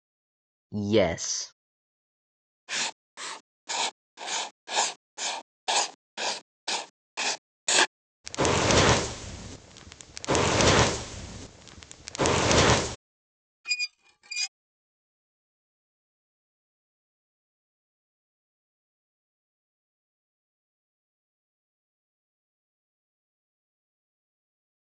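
At 0.73 seconds, someone says "Yes." After that, at 2.67 seconds, writing is heard. Next, at 8.24 seconds, there is the sound of fire. Finally, at 13.64 seconds, squeaking is audible.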